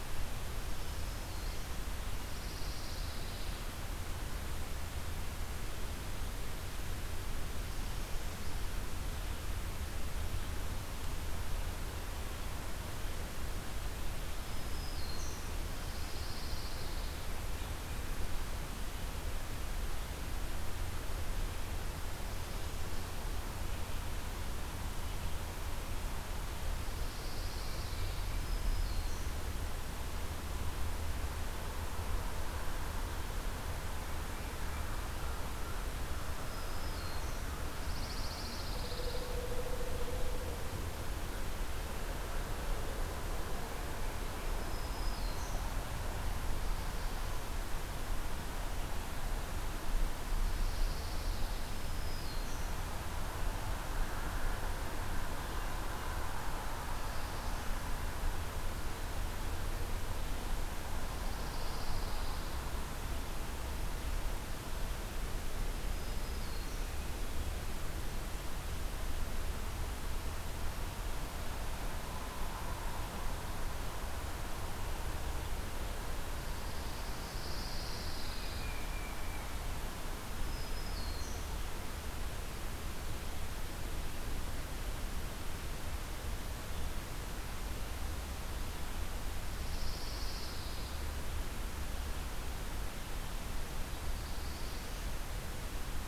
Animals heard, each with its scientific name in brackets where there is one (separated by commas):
Tufted Titmouse (Baeolophus bicolor), Black-throated Blue Warbler (Setophaga caerulescens), Dark-eyed Junco (Junco hyemalis), Pine Warbler (Setophaga pinus), Black-throated Green Warbler (Setophaga virens), Northern Parula (Setophaga americana)